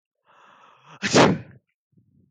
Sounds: Sneeze